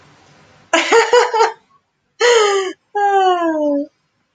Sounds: Laughter